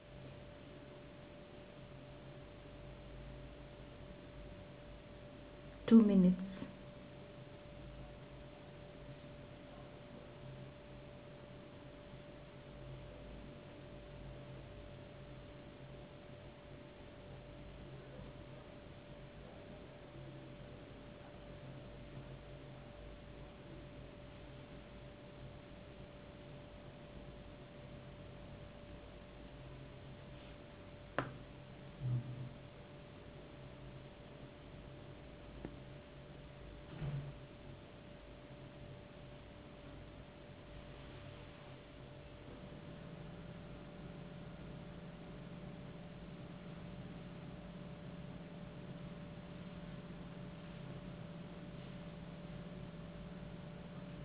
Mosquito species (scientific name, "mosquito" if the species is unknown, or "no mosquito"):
no mosquito